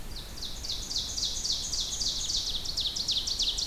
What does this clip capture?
Ovenbird